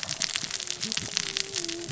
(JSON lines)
{"label": "biophony, cascading saw", "recorder": "SoundTrap 600 or HydroMoth"}